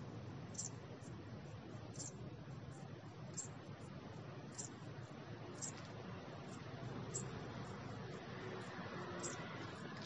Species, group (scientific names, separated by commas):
Eupholidoptera schmidti, Orthoptera